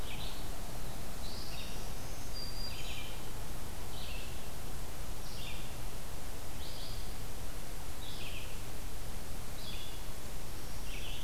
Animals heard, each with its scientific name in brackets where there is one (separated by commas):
Black-throated Green Warbler (Setophaga virens), Red-eyed Vireo (Vireo olivaceus)